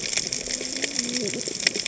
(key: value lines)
label: biophony, cascading saw
recorder: HydroMoth